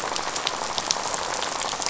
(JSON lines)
{"label": "biophony, rattle", "recorder": "SoundTrap 500"}